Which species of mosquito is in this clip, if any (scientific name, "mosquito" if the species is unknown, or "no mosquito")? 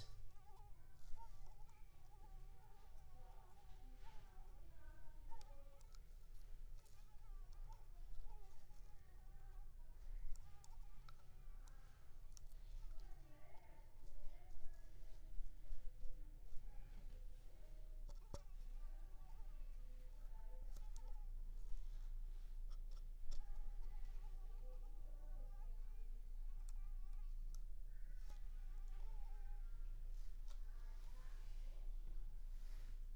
Anopheles squamosus